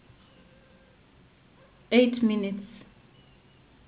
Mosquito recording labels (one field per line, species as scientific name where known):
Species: Anopheles gambiae s.s.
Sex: female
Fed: unfed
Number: one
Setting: insect culture